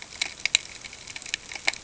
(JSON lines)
{"label": "ambient", "recorder": "HydroMoth"}